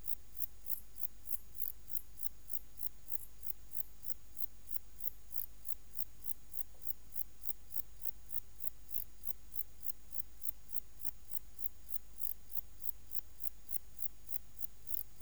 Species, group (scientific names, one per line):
Metrioptera saussuriana
Orthoptera